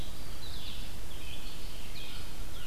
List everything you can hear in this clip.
Blue-headed Vireo, Red Squirrel, Red-eyed Vireo, American Crow